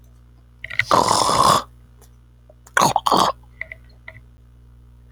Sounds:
Throat clearing